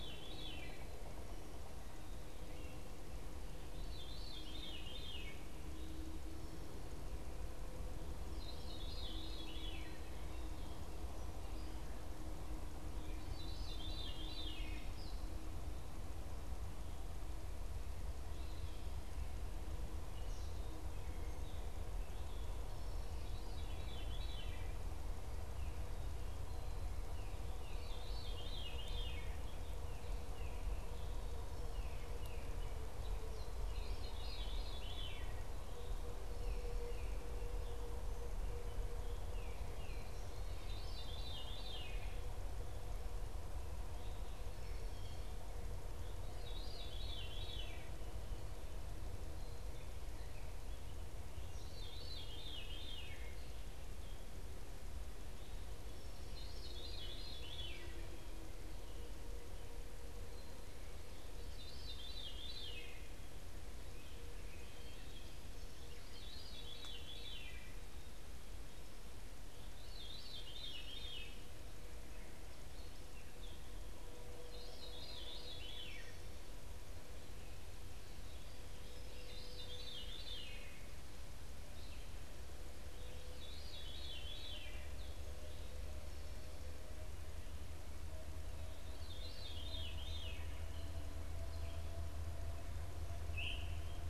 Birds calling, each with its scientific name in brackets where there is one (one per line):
Veery (Catharus fuscescens)
Gray Catbird (Dumetella carolinensis)
Tufted Titmouse (Baeolophus bicolor)